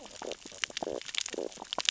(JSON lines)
{"label": "biophony, stridulation", "recorder": "SoundTrap 600 or HydroMoth"}